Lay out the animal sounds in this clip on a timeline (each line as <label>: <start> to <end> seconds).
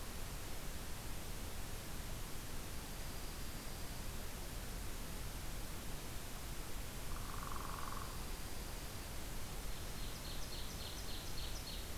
Dark-eyed Junco (Junco hyemalis): 2.8 to 4.1 seconds
Northern Flicker (Colaptes auratus): 7.1 to 8.2 seconds
Dark-eyed Junco (Junco hyemalis): 7.4 to 9.1 seconds
Ovenbird (Seiurus aurocapilla): 9.8 to 12.0 seconds